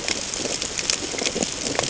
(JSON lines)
{"label": "ambient", "recorder": "HydroMoth"}